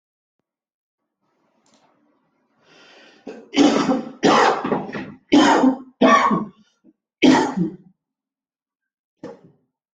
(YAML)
expert_labels:
- quality: ok
  cough_type: dry
  dyspnea: false
  wheezing: false
  stridor: false
  choking: false
  congestion: false
  nothing: true
  diagnosis: COVID-19
  severity: mild
age: 48
gender: male
respiratory_condition: false
fever_muscle_pain: false
status: symptomatic